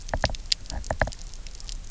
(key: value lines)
label: biophony, knock
recorder: SoundTrap 300